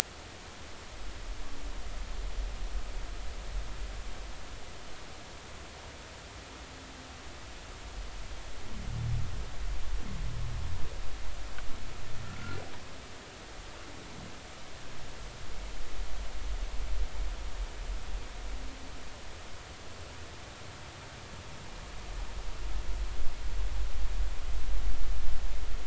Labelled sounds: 12.2	12.6	humpback whale, 1.3 to 1.5 kHz

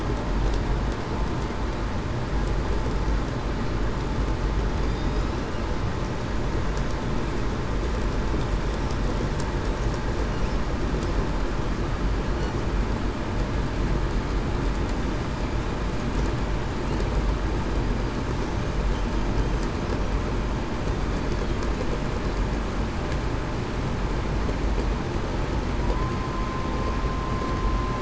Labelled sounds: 25.8	26.2	vessel noise, 0.96 to 1.1 kHz

